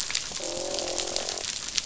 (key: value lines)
label: biophony, croak
recorder: SoundTrap 500